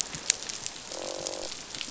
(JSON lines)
{"label": "biophony, croak", "recorder": "SoundTrap 500"}